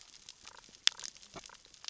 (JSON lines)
{"label": "biophony, damselfish", "recorder": "SoundTrap 600 or HydroMoth"}